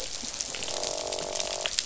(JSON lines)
{"label": "biophony, croak", "recorder": "SoundTrap 500"}